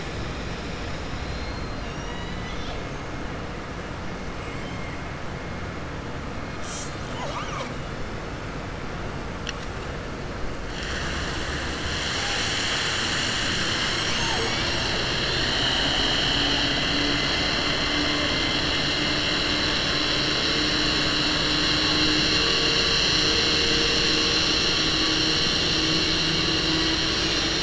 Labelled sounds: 1.2	2.8	killer whale, southern resident, 1.9 to 6.7 kHz
4.5	4.9	killer whale, southern resident, 1.9 to 3.2 kHz
15.2	17.3	killer whale, southern resident, 2.0 to 4.9 kHz

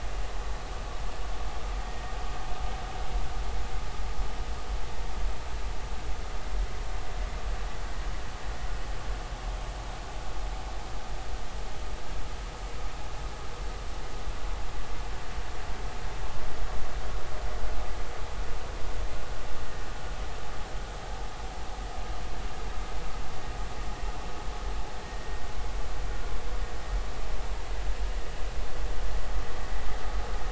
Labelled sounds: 1.8	2.1	vessel noise, 1.8 to 1.9 kHz

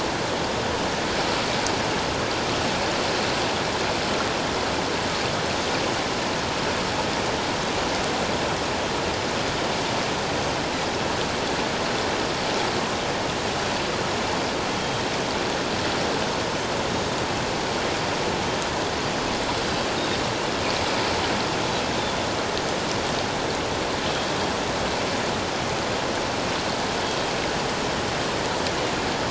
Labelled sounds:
27.0	27.3	Pacific white-sided dolphin, 3.2 to 4.7 kHz

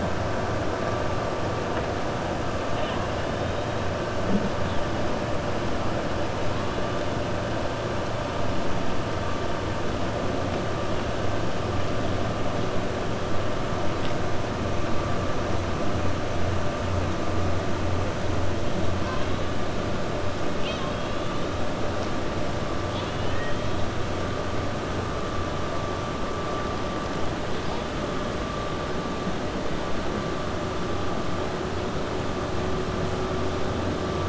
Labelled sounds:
20.5	21.3	killer whale, 1.1 to 5.9 kHz
22.8	23.7	killer whale, 1.8 to 4.5 kHz

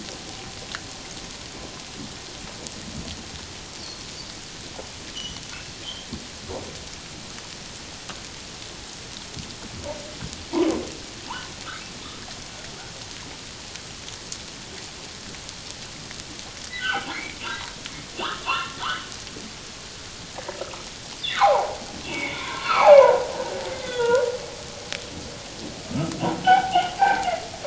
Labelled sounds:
3.8	4.0	humpback whale, 4.2 to 4.7 kHz
5.1	5.4	humpback whale, 2.8 to 6.0 kHz
16.8	17.4	humpback whale, 0.78 to 3.2 kHz
18.2	18.8	humpback whale, 0.84 to 3.1 kHz
21.3	24.3	humpback whale, 0.78 to 3.6 kHz
25.9	26.1	humpback whale, 1.2 to 1.4 kHz
26.4	27.3	humpback whale, 0.78 to 3.3 kHz

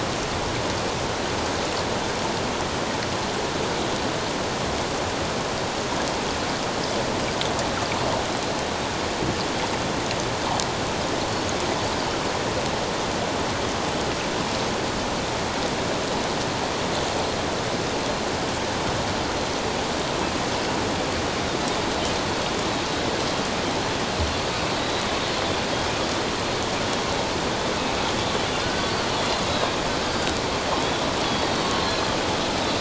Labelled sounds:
24.8	25.4	Pacific white-sided dolphin, 3.8 to 4.3 kHz
30.0	30.3	Pacific white-sided dolphin, 1.5 to 1.6 kHz
31.6	31.9	Pacific white-sided dolphin, 1.0 to 1.1 kHz

